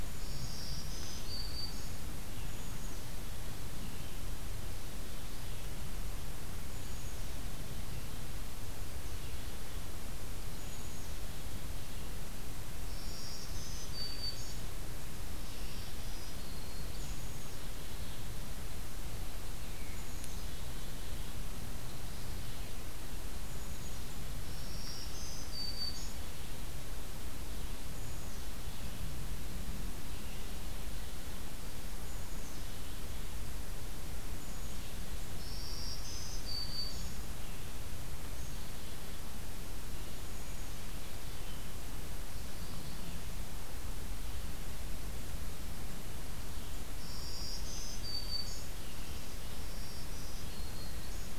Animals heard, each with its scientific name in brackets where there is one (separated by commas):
Black-throated Green Warbler (Setophaga virens), Black-capped Chickadee (Poecile atricapillus)